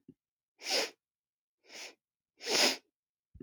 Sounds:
Sniff